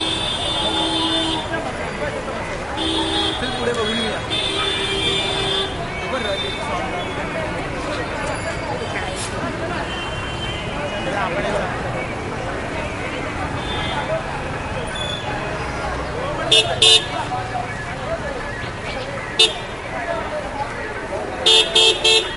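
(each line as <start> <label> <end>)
0.0 A car horn honks. 1.4
0.0 People are talking in the background. 22.4
0.0 Traffic noises in the background. 22.4
2.7 A car horn honks. 3.4
3.3 A man is speaking. 4.2
4.3 A car horn honks repeatedly. 5.7
16.5 A sharp honk sounds. 17.0
19.4 A sharp honk sounds. 19.6
21.5 A sharp honk sounds. 22.2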